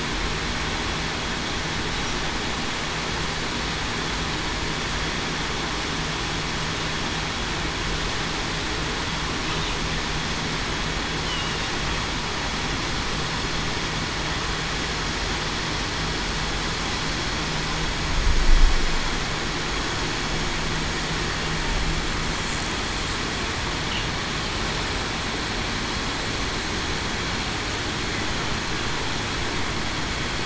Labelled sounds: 11.2	11.7	killer whale, southern resident, 2.8 to 3.1 kHz

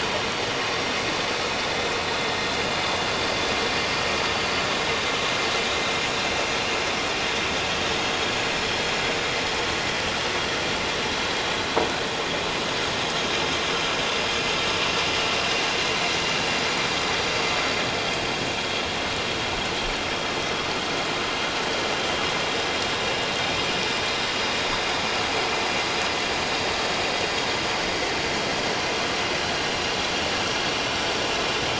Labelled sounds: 4.8	5.1	vessel noise, 3.7 to 3.9 kHz

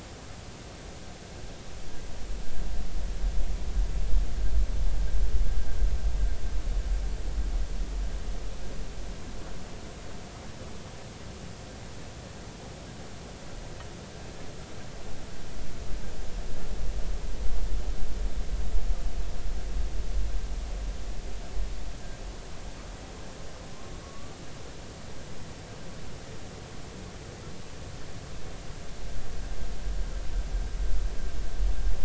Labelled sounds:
24.0	24.4	humpback whale, 1.1 to 1.2 kHz

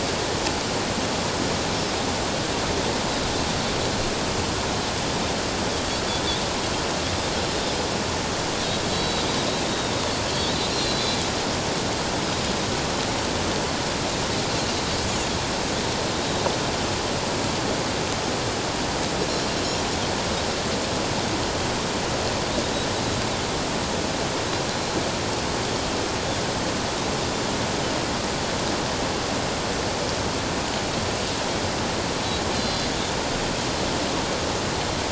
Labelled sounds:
8.9	10.0	Pacific white-sided dolphin, 3.6 to 4.5 kHz
10.7	11.2	Pacific white-sided dolphin, 3.4 to 4.3 kHz
19.2	19.5	Pacific white-sided dolphin, 5.3 to 5.5 kHz
32.5	32.9	Pacific white-sided dolphin, 4.0 to 4.8 kHz

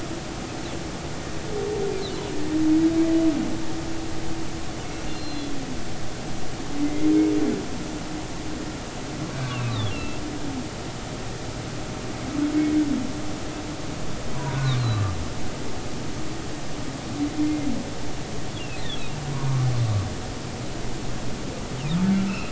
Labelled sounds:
5.0	5.5	humpback whale, 2.7 to 4.3 kHz
6.8	7.1	humpback whale, 2.0 to 2.2 kHz
9.5	10.2	humpback whale, 2.4 to 4.1 kHz
14.6	14.8	humpback whale, 0.99 to 1.2 kHz
15.8	16.0	humpback whale, 3.9 to 4.3 kHz
17.4	17.7	humpback whale, 2.0 to 2.2 kHz
18.8	19.0	humpback whale, 3.3 to 4.0 kHz
22.3	22.5	humpback whale, 2.4 to 2.8 kHz

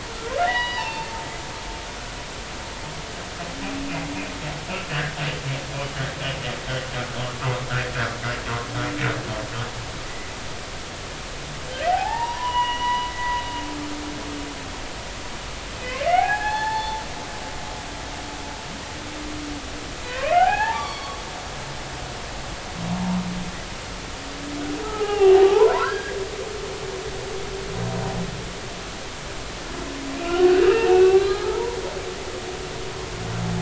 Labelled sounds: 0.4	1.1	humpback whale, 0.83 to 4.9 kHz
4.9	5.2	humpback whale, 1.4 to 1.9 kHz
11.9	13.4	humpback whale, 0.80 to 3.2 kHz
15.8	17.0	humpback whale, 0.80 to 4.4 kHz
20.0	21.2	humpback whale, 0.80 to 4.7 kHz
23.0	23.2	humpback whale, 0.86 to 1.1 kHz
24.8	26.2	humpback whale, 0.80 to 2.9 kHz
30.1	31.8	humpback whale, 0.83 to 4.2 kHz

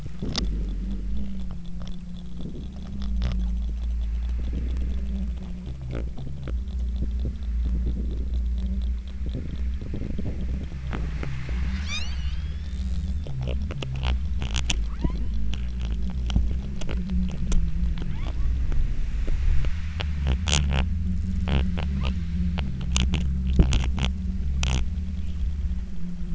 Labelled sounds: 11.7	13.2	killer whale, southern Alaska resident, 0.91 to 8.0 kHz
14.9	15.6	killer whale, southern Alaska resident, 0.64 to 4.5 kHz
18.2	18.6	killer whale, southern Alaska resident, 0.66 to 3.8 kHz
22.0	22.6	killer whale, southern Alaska resident, 1.3 to 5.1 kHz

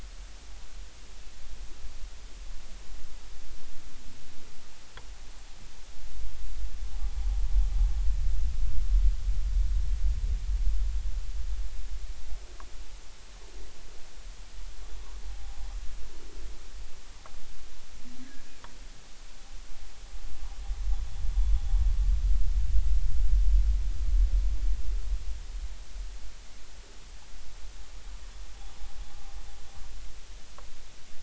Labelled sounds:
15.3	15.6	humpback whale, 0.80 to 0.86 kHz

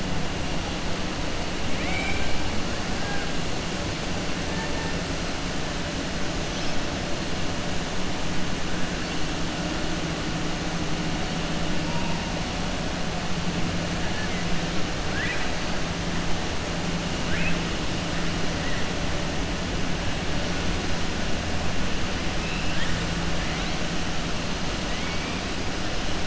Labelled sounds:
1.7	2.4	killer whale, southern resident, 0.77 to 3.9 kHz
15.0	15.5	killer whale, southern resident, 1.5 to 3.5 kHz

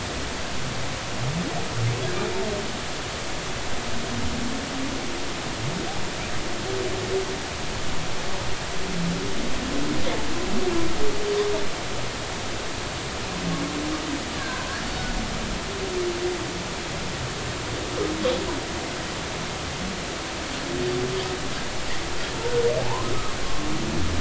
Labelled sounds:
14.4	14.8	humpback whale, 0.96 to 1.7 kHz
22.8	23.1	humpback whale, 0.80 to 1.1 kHz

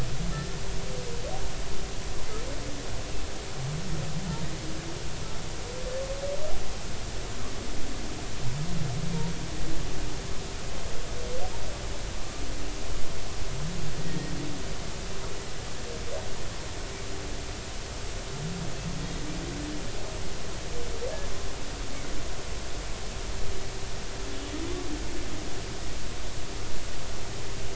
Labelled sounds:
14.0	14.3	humpback whale, 1.8 to 2.0 kHz

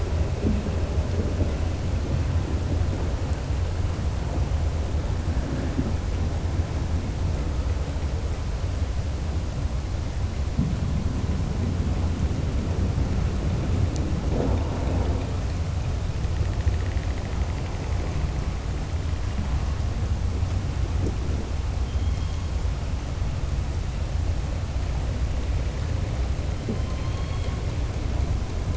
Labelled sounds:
26.8	27.5	killer whale, southern resident, 2.2 to 4.4 kHz

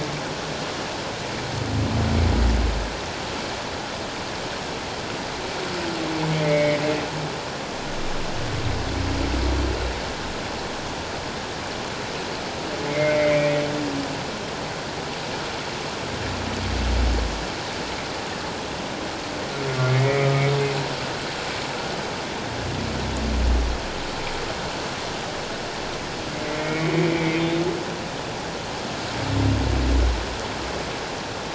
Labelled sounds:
6.3	6.8	humpback whale, 1.9 to 2.3 kHz
12.9	13.6	humpback whale, 1.9 to 2.4 kHz
19.9	20.4	humpback whale, 1.2 to 2.4 kHz
26.4	27.5	humpback whale, 1.8 to 2.4 kHz

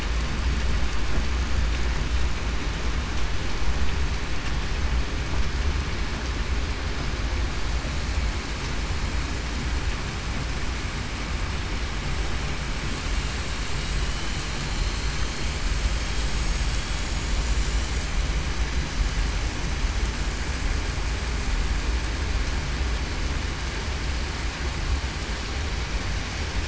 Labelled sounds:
16.2	16.6	vessel noise, 7.6 to 7.7 kHz
17.0	17.9	vessel noise, 5.8 to 6.9 kHz

